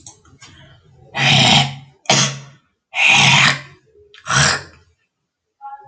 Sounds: Throat clearing